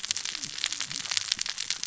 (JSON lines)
{"label": "biophony, cascading saw", "recorder": "SoundTrap 600 or HydroMoth"}